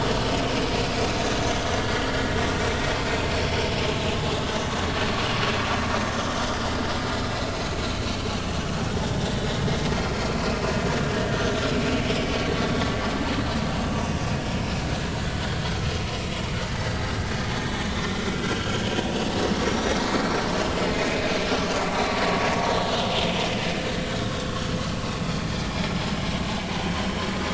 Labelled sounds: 1.9	2.2	vessel noise, 3.1 to 3.3 kHz
7.0	7.3	vessel noise, 3.9 to 4.1 kHz
11.4	11.6	vessel noise, 5.9 to 6.4 kHz
13.7	14.0	vessel noise, 2.7 to 2.9 kHz
17.1	20.0	vessel noise, 1.3 to 6.8 kHz
21.0	22.2	vessel noise, 2.4 to 4.1 kHz
25.7	25.9	vessel noise, 2.1 to 2.4 kHz
26.7	27.0	vessel noise, 4.4 to 4.5 kHz

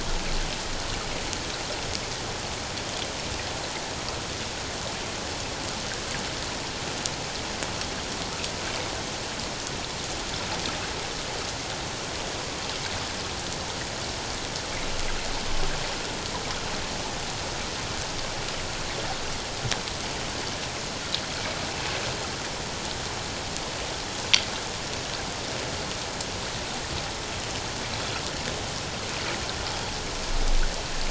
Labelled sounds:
21.7	22.0	water noise, 2.5 to 2.7 kHz

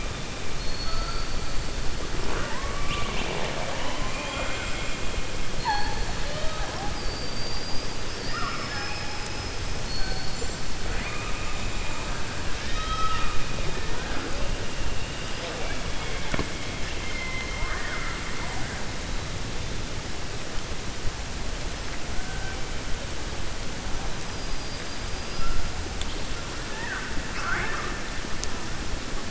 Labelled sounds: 0.5	1.3	killer whale, 4.3 to 4.6 kHz
6.9	9.5	killer whale, 0.81 to 5.5 kHz
12.6	13.4	killer whale, 1.0 to 5.7 kHz
16.7	18.2	killer whale, 0.93 to 3.1 kHz

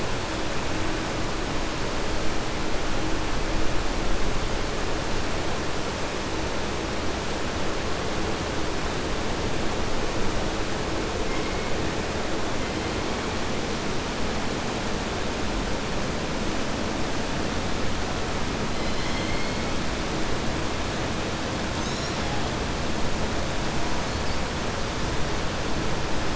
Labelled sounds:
18.7	19.5	killer whale, southern resident, 2.0 to 5.5 kHz

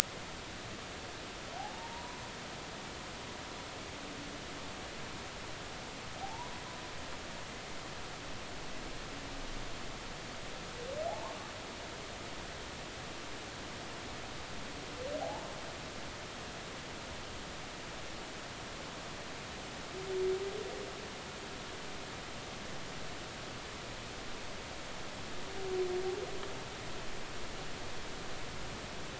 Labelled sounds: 1.7	2.2	humpback whale, 0.86 to 1.1 kHz
6.2	6.5	humpback whale, 0.80 to 1.0 kHz
11.1	11.4	humpback whale, 0.80 to 1.2 kHz
15.2	15.5	humpback whale, 0.80 to 0.96 kHz

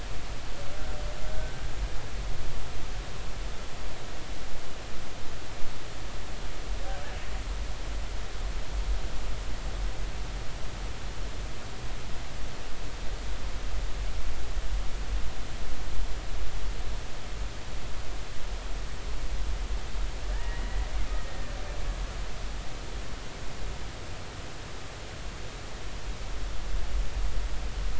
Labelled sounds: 1.3	1.6	killer whale, Bigg's (transient), 1.5 to 1.6 kHz
20.3	20.8	killer whale, Bigg's (transient), 1.6 to 2.0 kHz
21.2	21.5	killer whale, Bigg's (transient), 1.7 to 2.0 kHz

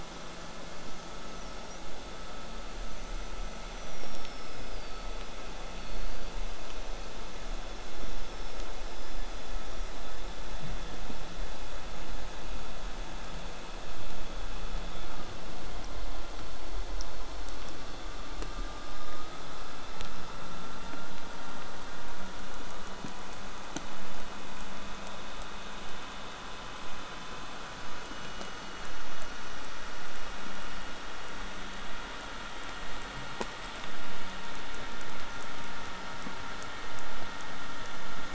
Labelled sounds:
0.8	1.8	killer whale, southern resident, J pod, whistle, 5.3 to 6.7 kHz
2.8	6.3	killer whale, southern resident, J pod, whistle, 4.2 to 8.0 kHz
8.0	10.4	killer whale, southern resident, J pod, whistle, 4.7 to 5.9 kHz
33.6	37.5	killer whale, southern resident, J pod, 5.0 to 8.0 kHz

